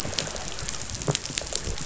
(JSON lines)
{"label": "biophony", "recorder": "SoundTrap 500"}